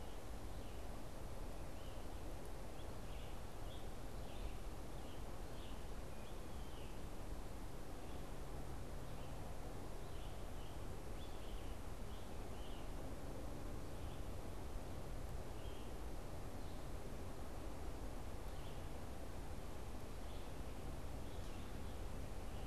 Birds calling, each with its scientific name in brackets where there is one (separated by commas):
Scarlet Tanager (Piranga olivacea)